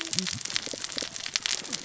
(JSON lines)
{"label": "biophony, cascading saw", "recorder": "SoundTrap 600 or HydroMoth"}